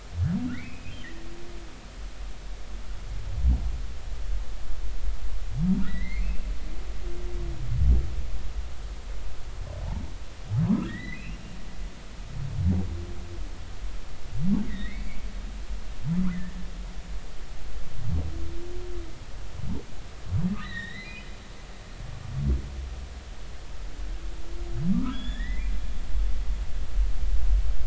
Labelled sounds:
0.5	1.0	humpback whale, 1.7 to 2.8 kHz
5.9	6.5	humpback whale, 1.8 to 4.0 kHz
10.8	11.4	humpback whale, 1.5 to 4.0 kHz
14.7	15.1	humpback whale, 1.8 to 2.3 kHz
16.3	16.6	humpback whale, 1.7 to 2.1 kHz
20.6	21.3	humpback whale, 1.7 to 4.2 kHz
24.9	25.7	humpback whale, 1.1 to 3.8 kHz

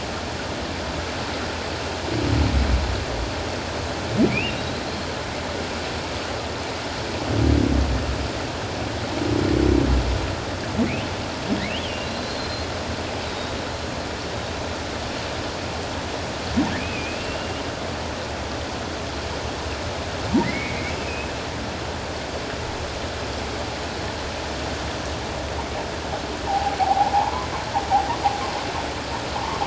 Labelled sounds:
4.3	4.8	humpback whale, 2.2 to 3.9 kHz
11.7	12.7	humpback whale, 2.6 to 4.3 kHz
13.2	13.6	humpback whale, 3.7 to 4.0 kHz
16.8	17.4	humpback whale, 2.2 to 2.8 kHz
20.4	21.3	humpback whale, 1.8 to 2.8 kHz
26.5	27.5	humpback whale, 0.78 to 1.2 kHz

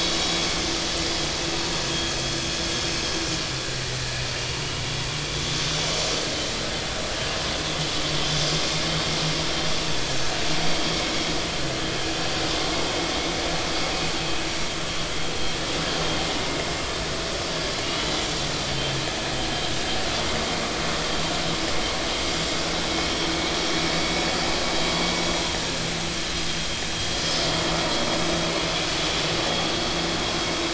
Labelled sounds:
3.8	4.6	vessel noise, 1.8 to 2.9 kHz
5.3	5.7	vessel noise, 6.9 to 7.2 kHz
17.8	18.3	vessel noise, 2.8 to 7.4 kHz

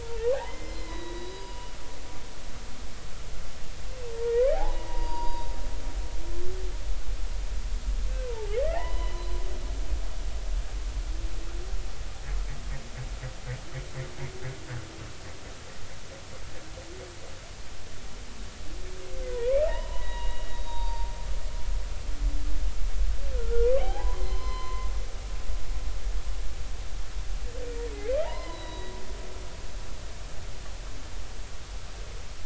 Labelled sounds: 0.0	1.7	humpback whale, 0.80 to 4.0 kHz
2.2	2.5	humpback whale, 4.8 to 5.0 kHz
4.5	5.5	humpback whale, 0.80 to 4.8 kHz
8.2	9.2	humpback whale, 0.80 to 4.1 kHz
19.3	21.1	humpback whale, 0.80 to 4.7 kHz
23.3	24.9	humpback whale, 0.80 to 4.2 kHz
28.2	28.9	humpback whale, 0.80 to 4.9 kHz

